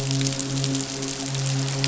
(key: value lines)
label: biophony, midshipman
recorder: SoundTrap 500